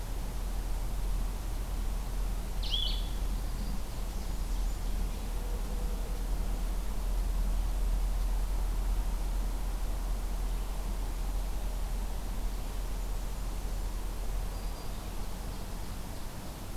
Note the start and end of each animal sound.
[2.49, 3.29] Blue-headed Vireo (Vireo solitarius)
[3.10, 5.16] Ovenbird (Seiurus aurocapilla)
[3.51, 5.07] Blackburnian Warbler (Setophaga fusca)
[12.92, 14.08] Blackburnian Warbler (Setophaga fusca)
[14.31, 15.06] Black-throated Green Warbler (Setophaga virens)
[15.08, 16.76] Ovenbird (Seiurus aurocapilla)

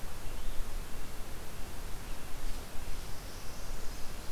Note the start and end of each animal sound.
[2.39, 4.32] Northern Parula (Setophaga americana)

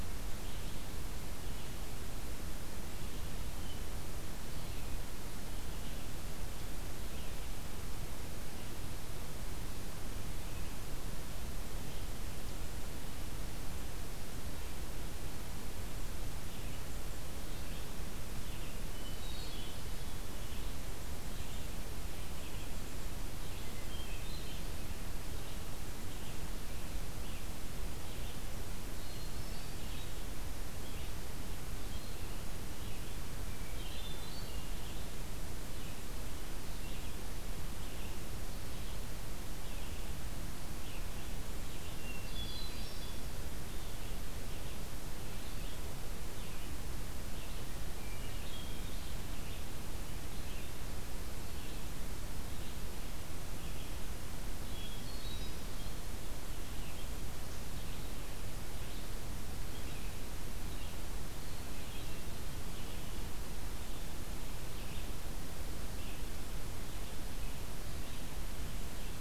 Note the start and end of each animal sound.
[0.00, 41.96] Red-eyed Vireo (Vireo olivaceus)
[18.55, 19.84] Hermit Thrush (Catharus guttatus)
[23.55, 24.98] Hermit Thrush (Catharus guttatus)
[33.33, 34.90] Hermit Thrush (Catharus guttatus)
[41.73, 43.30] Hermit Thrush (Catharus guttatus)
[43.56, 69.21] Red-eyed Vireo (Vireo olivaceus)
[47.75, 49.07] Hermit Thrush (Catharus guttatus)
[54.60, 55.98] Hermit Thrush (Catharus guttatus)

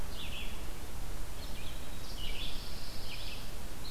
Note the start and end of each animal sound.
[0.00, 3.91] Red-eyed Vireo (Vireo olivaceus)
[2.00, 3.65] Pine Warbler (Setophaga pinus)

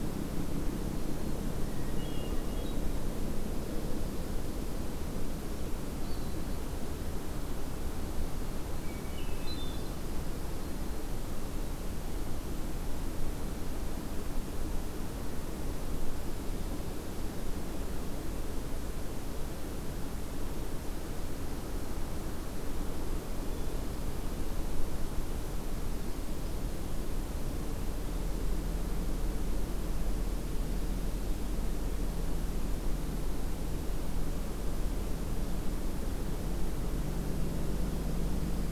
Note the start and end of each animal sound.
[0.80, 1.43] Black-throated Green Warbler (Setophaga virens)
[1.64, 2.83] Hermit Thrush (Catharus guttatus)
[5.36, 6.45] Hermit Thrush (Catharus guttatus)
[8.81, 10.04] Hermit Thrush (Catharus guttatus)
[10.53, 11.09] Black-throated Green Warbler (Setophaga virens)

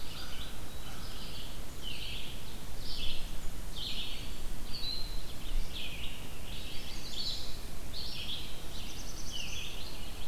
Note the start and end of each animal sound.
[0.00, 1.50] American Crow (Corvus brachyrhynchos)
[0.00, 6.14] Red-eyed Vireo (Vireo olivaceus)
[6.50, 7.50] Chestnut-sided Warbler (Setophaga pensylvanica)
[6.56, 10.28] Red-eyed Vireo (Vireo olivaceus)
[8.36, 10.04] Black-throated Blue Warbler (Setophaga caerulescens)

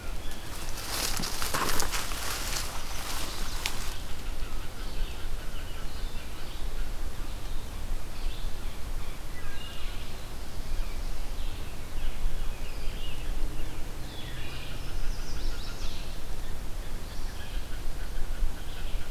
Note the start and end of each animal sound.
[0.00, 19.11] Red-eyed Vireo (Vireo olivaceus)
[4.00, 6.94] Mallard (Anas platyrhynchos)
[14.15, 19.11] Mallard (Anas platyrhynchos)
[14.75, 16.27] Chestnut-sided Warbler (Setophaga pensylvanica)

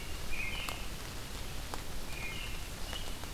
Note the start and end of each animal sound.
[0.00, 0.92] American Robin (Turdus migratorius)
[2.08, 3.34] American Robin (Turdus migratorius)

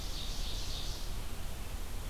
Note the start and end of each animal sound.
[0.03, 1.10] Ovenbird (Seiurus aurocapilla)

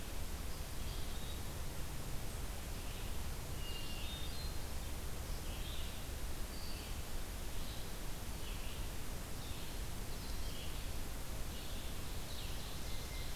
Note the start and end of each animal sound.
[0.00, 13.35] Red-eyed Vireo (Vireo olivaceus)
[3.37, 4.74] Hermit Thrush (Catharus guttatus)
[11.71, 13.35] Ovenbird (Seiurus aurocapilla)

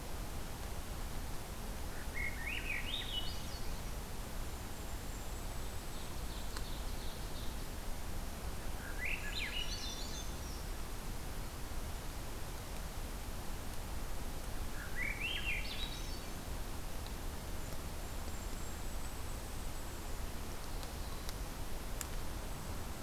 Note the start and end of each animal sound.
[1.81, 3.67] Swainson's Thrush (Catharus ustulatus)
[4.10, 6.73] Golden-crowned Kinglet (Regulus satrapa)
[5.70, 7.71] Ovenbird (Seiurus aurocapilla)
[8.72, 10.29] Swainson's Thrush (Catharus ustulatus)
[9.24, 10.65] Brown Creeper (Certhia americana)
[14.73, 16.28] Swainson's Thrush (Catharus ustulatus)
[17.53, 20.09] Golden-crowned Kinglet (Regulus satrapa)
[20.62, 21.58] Black-throated Blue Warbler (Setophaga caerulescens)
[22.37, 22.96] Golden-crowned Kinglet (Regulus satrapa)

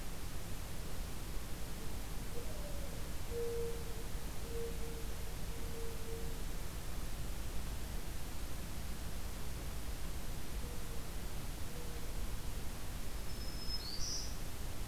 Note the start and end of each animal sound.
[1.72, 7.02] Mourning Dove (Zenaida macroura)
[10.10, 12.40] Mourning Dove (Zenaida macroura)
[12.95, 14.65] Black-throated Green Warbler (Setophaga virens)

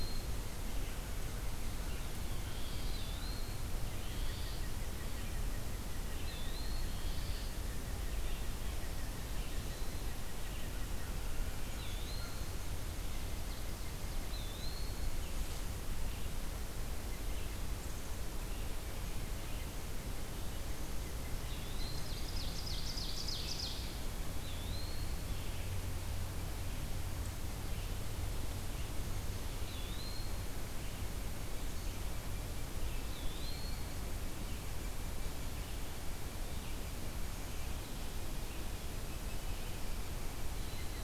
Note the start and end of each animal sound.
[0.00, 15.69] unidentified call
[0.00, 41.03] Red-eyed Vireo (Vireo olivaceus)
[2.48, 3.11] Gray Catbird (Dumetella carolinensis)
[2.68, 3.64] Eastern Wood-Pewee (Contopus virens)
[3.91, 4.56] Gray Catbird (Dumetella carolinensis)
[6.06, 7.08] Eastern Wood-Pewee (Contopus virens)
[6.93, 7.53] Gray Catbird (Dumetella carolinensis)
[11.60, 12.54] Eastern Wood-Pewee (Contopus virens)
[14.22, 15.26] Eastern Wood-Pewee (Contopus virens)
[21.27, 22.13] Eastern Wood-Pewee (Contopus virens)
[21.53, 24.15] Ovenbird (Seiurus aurocapilla)
[24.27, 25.19] Eastern Wood-Pewee (Contopus virens)
[29.61, 30.51] Eastern Wood-Pewee (Contopus virens)
[32.87, 33.96] Eastern Wood-Pewee (Contopus virens)

